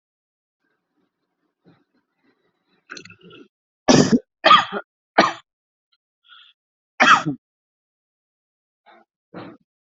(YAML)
expert_labels:
- quality: ok
  cough_type: unknown
  dyspnea: false
  wheezing: false
  stridor: false
  choking: false
  congestion: false
  nothing: true
  diagnosis: healthy cough
  severity: pseudocough/healthy cough
age: 24
gender: male
respiratory_condition: false
fever_muscle_pain: false
status: healthy